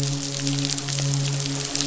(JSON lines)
{"label": "biophony, midshipman", "recorder": "SoundTrap 500"}